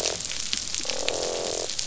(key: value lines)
label: biophony, croak
recorder: SoundTrap 500